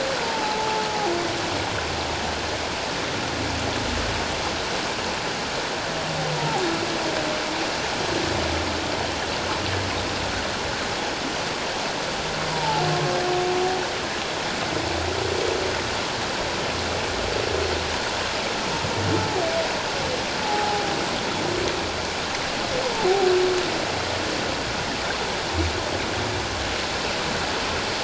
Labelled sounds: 6.3	6.6	humpback whale, 0.78 to 0.97 kHz
12.5	12.8	humpback whale, 0.78 to 1.0 kHz
20.4	20.8	humpback whale, 0.78 to 0.94 kHz

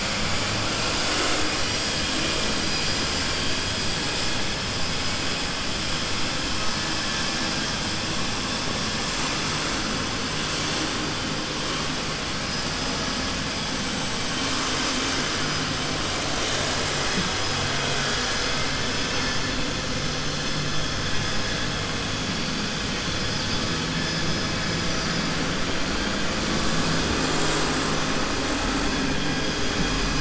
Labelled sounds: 18.9	19.3	vessel noise, 0.98 to 3.6 kHz

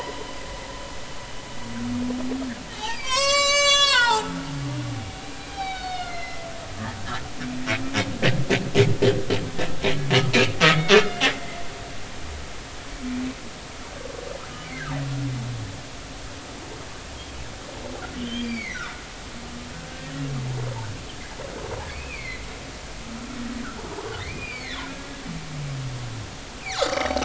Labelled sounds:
2.7	4.4	humpback whale, 0.80 to 8.0 kHz
5.5	6.5	humpback whale, 0.80 to 5.5 kHz
9.8	10.6	humpback whale, 2.2 to 2.8 kHz
11.3	11.6	humpback whale, 2.0 to 2.1 kHz
14.6	14.9	humpback whale, 1.5 to 2.4 kHz
18.2	19.0	humpback whale, 1.1 to 4.9 kHz
21.9	22.5	humpback whale, 2.0 to 4.4 kHz
24.2	24.8	humpback whale, 1.7 to 4.9 kHz
26.7	27.0	humpback whale, 0.99 to 4.7 kHz

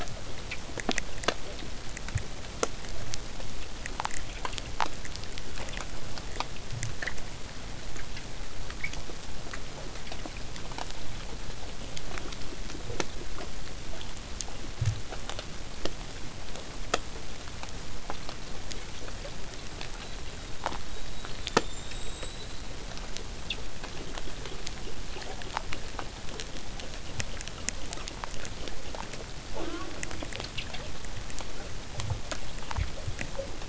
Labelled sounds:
19.9	22.8	killer whale, southern resident, 3.4 to 8.0 kHz

